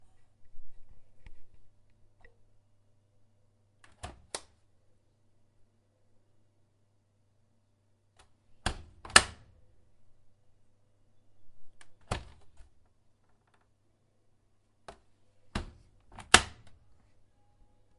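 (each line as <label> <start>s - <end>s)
Quiet opening and closing sounds with long pauses. 3.9s - 16.6s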